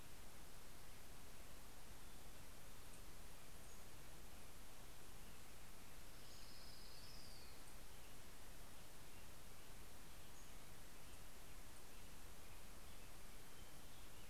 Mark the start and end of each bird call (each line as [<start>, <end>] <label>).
[3.12, 4.62] Pacific-slope Flycatcher (Empidonax difficilis)
[5.62, 7.02] Pacific-slope Flycatcher (Empidonax difficilis)
[5.72, 8.62] Orange-crowned Warbler (Leiothlypis celata)
[9.62, 11.02] Pacific-slope Flycatcher (Empidonax difficilis)